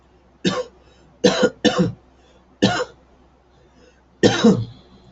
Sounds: Cough